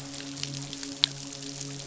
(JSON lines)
{"label": "biophony, midshipman", "recorder": "SoundTrap 500"}